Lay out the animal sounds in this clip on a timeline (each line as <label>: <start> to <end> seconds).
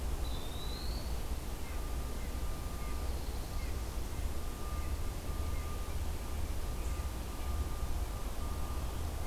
Eastern Wood-Pewee (Contopus virens): 0.0 to 1.3 seconds
Red-breasted Nuthatch (Sitta canadensis): 1.2 to 7.5 seconds